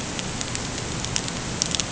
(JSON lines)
{"label": "ambient", "recorder": "HydroMoth"}